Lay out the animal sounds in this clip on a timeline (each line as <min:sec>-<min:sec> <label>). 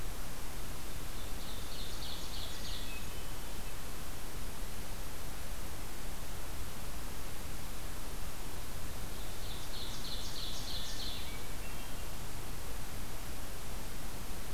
0:01.0-0:02.9 Ovenbird (Seiurus aurocapilla)
0:02.4-0:03.6 Hermit Thrush (Catharus guttatus)
0:09.1-0:11.2 Ovenbird (Seiurus aurocapilla)
0:10.7-0:12.1 Hermit Thrush (Catharus guttatus)